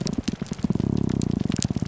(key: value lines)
label: biophony, grouper groan
recorder: SoundTrap 300